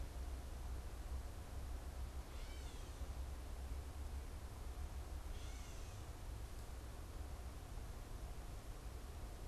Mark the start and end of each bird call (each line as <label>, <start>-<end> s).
Gray Catbird (Dumetella carolinensis), 2.2-5.9 s